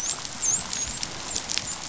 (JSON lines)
{"label": "biophony, dolphin", "recorder": "SoundTrap 500"}